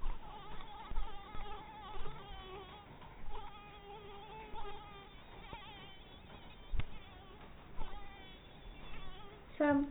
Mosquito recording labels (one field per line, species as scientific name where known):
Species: mosquito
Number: one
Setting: cup